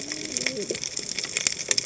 {"label": "biophony, cascading saw", "recorder": "HydroMoth"}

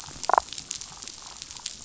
{"label": "biophony, damselfish", "recorder": "SoundTrap 500"}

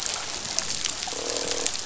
{"label": "biophony, croak", "recorder": "SoundTrap 500"}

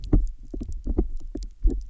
{"label": "biophony", "recorder": "SoundTrap 300"}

